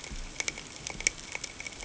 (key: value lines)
label: ambient
recorder: HydroMoth